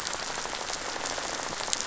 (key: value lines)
label: biophony, rattle
recorder: SoundTrap 500